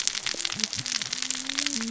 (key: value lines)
label: biophony, cascading saw
recorder: SoundTrap 600 or HydroMoth